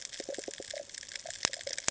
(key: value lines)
label: ambient
recorder: HydroMoth